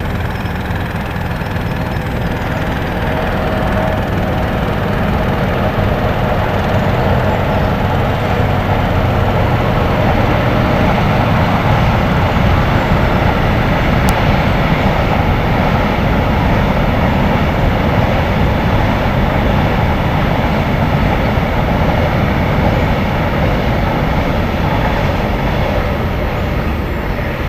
Is that a sound of and engine?
yes